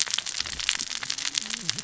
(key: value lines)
label: biophony, cascading saw
recorder: SoundTrap 600 or HydroMoth